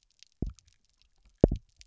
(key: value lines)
label: biophony, double pulse
recorder: SoundTrap 300